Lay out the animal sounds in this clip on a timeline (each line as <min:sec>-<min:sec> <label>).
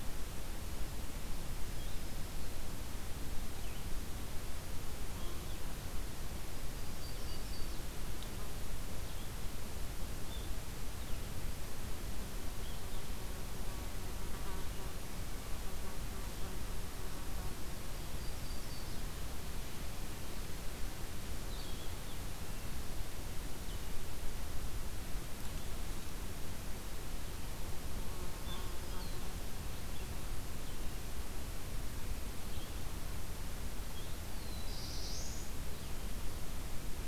0:00.0-0:29.2 Red-eyed Vireo (Vireo olivaceus)
0:01.5-0:02.7 Yellow-rumped Warbler (Setophaga coronata)
0:06.6-0:07.9 Yellow-rumped Warbler (Setophaga coronata)
0:17.9-0:19.1 Yellow-rumped Warbler (Setophaga coronata)
0:28.2-0:29.2 Yellow-rumped Warbler (Setophaga coronata)
0:29.8-0:37.1 Red-eyed Vireo (Vireo olivaceus)
0:34.2-0:35.5 Black-throated Blue Warbler (Setophaga caerulescens)